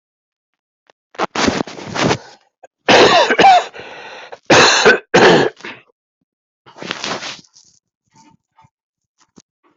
{"expert_labels": [{"quality": "good", "cough_type": "wet", "dyspnea": false, "wheezing": false, "stridor": false, "choking": false, "congestion": false, "nothing": true, "diagnosis": "lower respiratory tract infection", "severity": "mild"}], "gender": "female", "respiratory_condition": true, "fever_muscle_pain": true, "status": "COVID-19"}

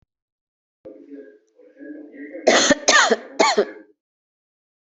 {"expert_labels": [{"quality": "poor", "cough_type": "dry", "dyspnea": false, "wheezing": false, "stridor": false, "choking": false, "congestion": false, "nothing": true, "diagnosis": "COVID-19", "severity": "mild"}]}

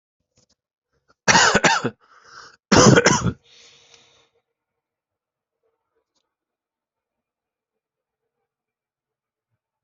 {"expert_labels": [{"quality": "good", "cough_type": "dry", "dyspnea": false, "wheezing": false, "stridor": false, "choking": false, "congestion": false, "nothing": true, "diagnosis": "upper respiratory tract infection", "severity": "mild"}], "gender": "female", "respiratory_condition": false, "fever_muscle_pain": false, "status": "healthy"}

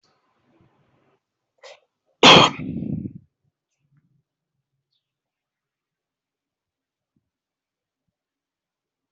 {"expert_labels": [{"quality": "ok", "cough_type": "dry", "dyspnea": false, "wheezing": false, "stridor": false, "choking": false, "congestion": false, "nothing": true, "diagnosis": "COVID-19", "severity": "mild"}], "age": 28, "gender": "male", "respiratory_condition": false, "fever_muscle_pain": true, "status": "COVID-19"}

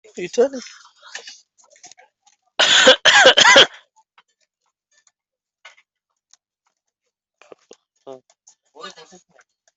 {"expert_labels": [{"quality": "poor", "cough_type": "unknown", "dyspnea": false, "wheezing": false, "stridor": false, "choking": false, "congestion": false, "nothing": true, "diagnosis": "healthy cough", "severity": "pseudocough/healthy cough"}, {"quality": "ok", "cough_type": "dry", "dyspnea": false, "wheezing": false, "stridor": false, "choking": false, "congestion": false, "nothing": true, "diagnosis": "COVID-19", "severity": "mild"}, {"quality": "good", "cough_type": "dry", "dyspnea": false, "wheezing": false, "stridor": false, "choking": false, "congestion": false, "nothing": true, "diagnosis": "healthy cough", "severity": "pseudocough/healthy cough"}, {"quality": "good", "cough_type": "dry", "dyspnea": false, "wheezing": false, "stridor": false, "choking": false, "congestion": false, "nothing": true, "diagnosis": "upper respiratory tract infection", "severity": "mild"}]}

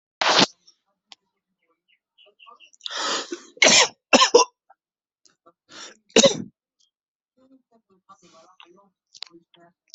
{"expert_labels": [{"quality": "good", "cough_type": "unknown", "dyspnea": false, "wheezing": false, "stridor": false, "choking": false, "congestion": false, "nothing": true, "diagnosis": "upper respiratory tract infection", "severity": "mild"}], "age": 36, "gender": "male", "respiratory_condition": false, "fever_muscle_pain": false, "status": "symptomatic"}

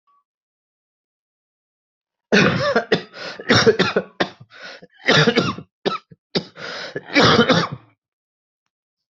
{"expert_labels": [{"quality": "good", "cough_type": "dry", "dyspnea": false, "wheezing": true, "stridor": false, "choking": true, "congestion": false, "nothing": false, "diagnosis": "lower respiratory tract infection", "severity": "severe"}], "age": 22, "gender": "male", "respiratory_condition": false, "fever_muscle_pain": false, "status": "symptomatic"}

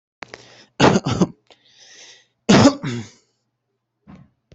{"expert_labels": [{"quality": "good", "cough_type": "dry", "dyspnea": false, "wheezing": false, "stridor": false, "choking": false, "congestion": false, "nothing": true, "diagnosis": "upper respiratory tract infection", "severity": "mild"}], "age": 26, "gender": "male", "respiratory_condition": false, "fever_muscle_pain": true, "status": "COVID-19"}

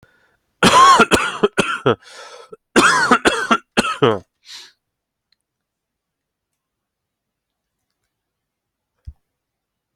{"expert_labels": [{"quality": "good", "cough_type": "dry", "dyspnea": false, "wheezing": false, "stridor": false, "choking": false, "congestion": false, "nothing": true, "diagnosis": "upper respiratory tract infection", "severity": "mild"}], "age": 33, "gender": "male", "respiratory_condition": false, "fever_muscle_pain": false, "status": "healthy"}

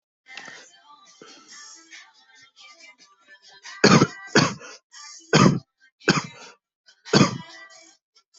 {"expert_labels": [{"quality": "ok", "cough_type": "unknown", "dyspnea": false, "wheezing": false, "stridor": false, "choking": false, "congestion": false, "nothing": true, "diagnosis": "lower respiratory tract infection", "severity": "mild"}]}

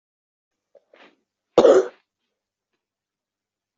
{"expert_labels": [{"quality": "good", "cough_type": "dry", "dyspnea": false, "wheezing": false, "stridor": false, "choking": false, "congestion": false, "nothing": true, "diagnosis": "lower respiratory tract infection", "severity": "mild"}], "age": 18, "gender": "female", "respiratory_condition": false, "fever_muscle_pain": false, "status": "symptomatic"}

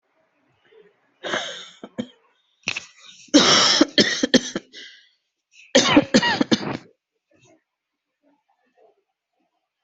{"expert_labels": [{"quality": "good", "cough_type": "dry", "dyspnea": true, "wheezing": false, "stridor": false, "choking": false, "congestion": false, "nothing": true, "diagnosis": "obstructive lung disease", "severity": "mild"}], "age": 33, "gender": "female", "respiratory_condition": false, "fever_muscle_pain": false, "status": "healthy"}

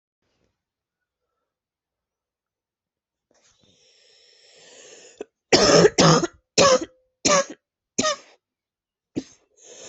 {"expert_labels": [{"quality": "good", "cough_type": "wet", "dyspnea": false, "wheezing": true, "stridor": false, "choking": false, "congestion": false, "nothing": true, "diagnosis": "lower respiratory tract infection", "severity": "severe"}], "age": 32, "gender": "female", "respiratory_condition": false, "fever_muscle_pain": false, "status": "symptomatic"}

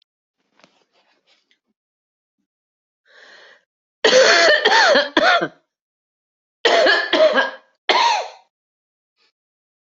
{"expert_labels": [{"quality": "good", "cough_type": "wet", "dyspnea": false, "wheezing": false, "stridor": false, "choking": false, "congestion": false, "nothing": true, "diagnosis": "obstructive lung disease", "severity": "severe"}], "age": 74, "gender": "female", "respiratory_condition": false, "fever_muscle_pain": false, "status": "healthy"}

